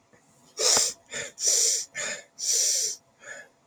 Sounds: Sniff